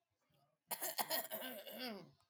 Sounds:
Throat clearing